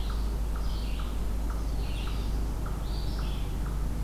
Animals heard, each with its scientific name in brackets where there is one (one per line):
Eastern Chipmunk (Tamias striatus)
Red-eyed Vireo (Vireo olivaceus)
Black-throated Blue Warbler (Setophaga caerulescens)